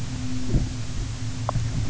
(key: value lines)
label: anthrophony, boat engine
recorder: SoundTrap 300